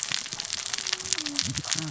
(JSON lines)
{"label": "biophony, cascading saw", "recorder": "SoundTrap 600 or HydroMoth"}